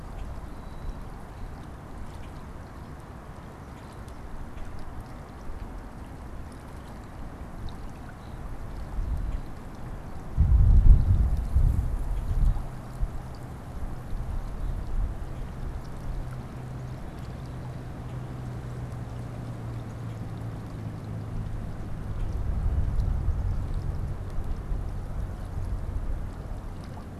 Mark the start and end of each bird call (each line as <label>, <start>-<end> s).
Common Grackle (Quiscalus quiscula), 0.0-1.2 s
Common Grackle (Quiscalus quiscula), 2.1-2.4 s
Common Grackle (Quiscalus quiscula), 4.5-5.8 s
Common Grackle (Quiscalus quiscula), 9.2-9.7 s
Common Grackle (Quiscalus quiscula), 11.9-12.4 s
Common Grackle (Quiscalus quiscula), 18.0-18.3 s
Common Grackle (Quiscalus quiscula), 19.9-20.3 s
Common Grackle (Quiscalus quiscula), 22.0-22.5 s